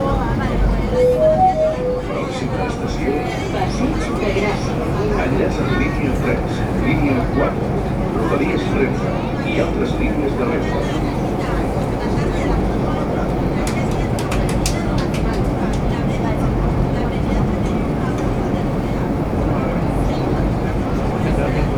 Is there more than one person around?
yes